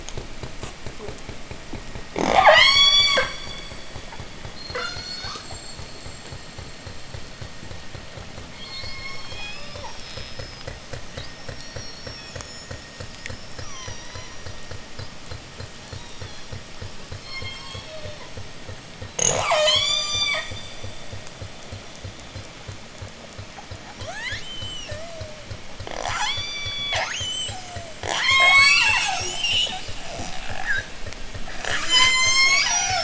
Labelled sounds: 2.1	6.0	killer whale, J pod, 0.11 to 8.0 kHz
8.5	10.6	killer whale, J pod, 0.78 to 6.1 kHz
10.9	14.6	killer whale, J pod, 0.68 to 7.2 kHz
17.2	18.6	killer whale, J pod, 0.36 to 8.0 kHz
19.1	20.7	killer whale, J pod, 0.29 to 8.0 kHz
23.9	25.5	killer whale, J pod, 0.32 to 8.0 kHz
25.8	30.0	killer whale, J pod, 0.37 to 8.0 kHz
31.5	33.0	killer whale, J pod, call S01, 0.42 to 8.0 kHz

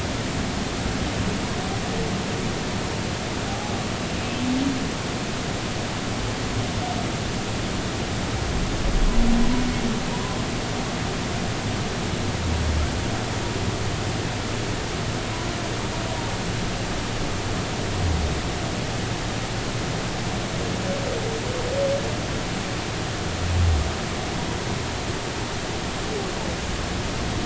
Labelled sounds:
3.5	3.7	humpback whale, 0.80 to 0.86 kHz

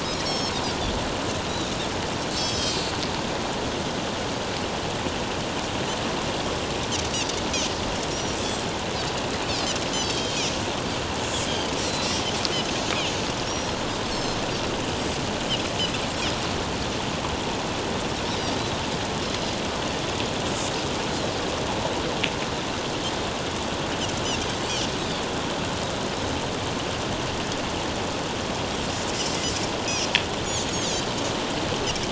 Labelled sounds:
0.2	0.6	Pacific white-sided dolphin, 4.2 to 6.6 kHz
2.3	2.9	Pacific white-sided dolphin, 3.9 to 7.3 kHz
8.3	8.6	Pacific white-sided dolphin, 5.8 to 6.2 kHz
9.9	10.4	Pacific white-sided dolphin, 3.1 to 5.4 kHz
11.8	12.1	Pacific white-sided dolphin, 3.9 to 4.4 kHz
13.4	14.4	Pacific white-sided dolphin, 5.1 to 7.7 kHz
19.3	19.5	Pacific white-sided dolphin, 4.9 to 5.2 kHz
25.0	25.2	Pacific white-sided dolphin, 3.3 to 3.9 kHz
30.7	31.1	Pacific white-sided dolphin, 5.8 to 7.0 kHz

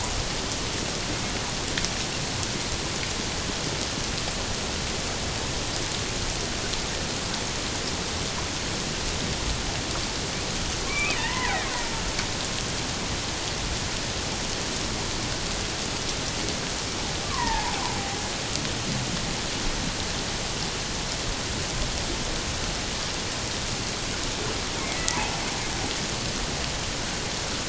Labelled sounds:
10.9	11.7	killer whale, Bigg's (transient), 0.84 to 2.6 kHz
17.3	17.8	killer whale, Bigg's (transient), 0.78 to 2.0 kHz
24.9	25.2	killer whale, Bigg's (transient), 1.9 to 2.1 kHz

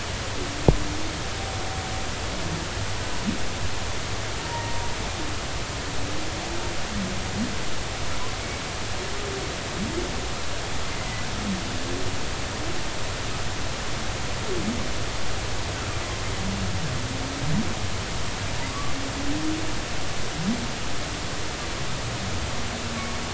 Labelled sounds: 4.4	4.9	humpback whale, 0.90 to 1.0 kHz
18.7	18.9	humpback whale, 1.0 to 1.2 kHz

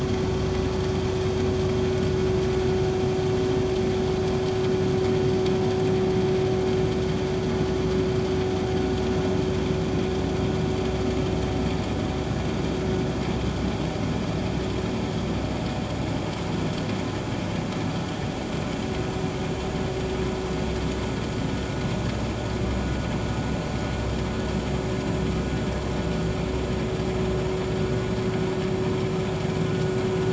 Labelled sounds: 29.7	29.9	vessel noise, 1.4 to 1.6 kHz

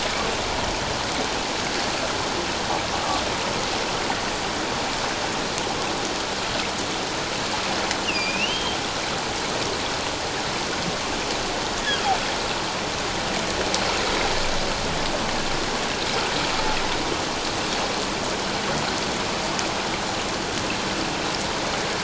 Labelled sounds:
8.0	8.8	humpback whale, 2.3 to 5.0 kHz

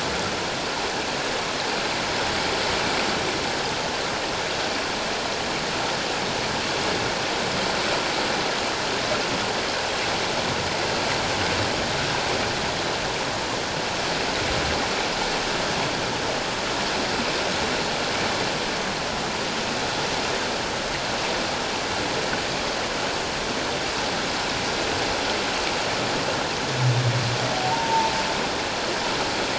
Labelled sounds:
27.7	28.1	humpback whale, 0.84 to 1.0 kHz

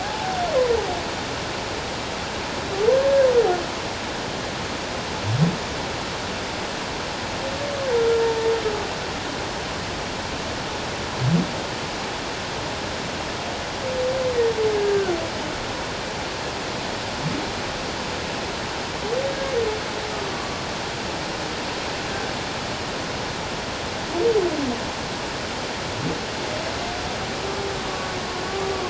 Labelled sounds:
0.0	0.4	humpback whale, 0.78 to 0.91 kHz
14.8	15.2	humpback whale, 1.3 to 1.7 kHz
20.3	20.6	humpback whale, 1.0 to 1.2 kHz

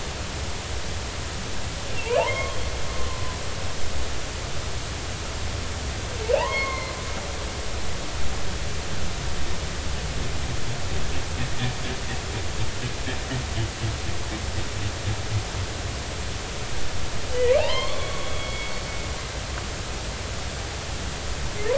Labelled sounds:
1.9	2.6	humpback whale, 0.80 to 3.0 kHz
6.3	7.0	humpback whale, 0.80 to 4.4 kHz
17.6	18.7	humpback whale, 0.80 to 4.4 kHz

